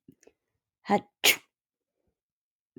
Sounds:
Sneeze